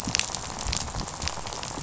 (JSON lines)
{"label": "biophony, rattle", "recorder": "SoundTrap 500"}